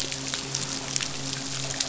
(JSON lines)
{"label": "biophony, midshipman", "recorder": "SoundTrap 500"}